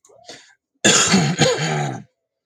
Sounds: Throat clearing